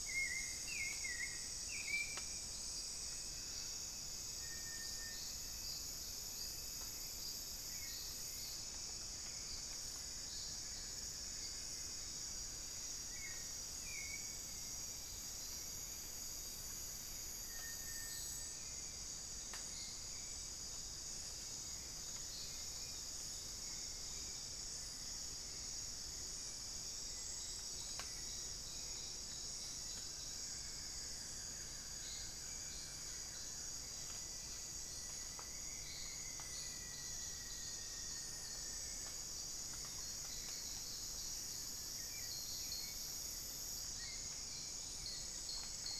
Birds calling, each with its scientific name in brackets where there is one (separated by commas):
Buff-throated Woodcreeper (Xiphorhynchus guttatus), unidentified bird, Little Tinamou (Crypturellus soui), Hauxwell's Thrush (Turdus hauxwelli), Rufous-fronted Antthrush (Formicarius rufifrons)